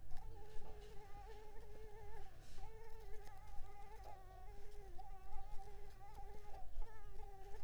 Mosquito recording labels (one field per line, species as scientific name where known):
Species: Culex pipiens complex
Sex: female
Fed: unfed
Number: one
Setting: cup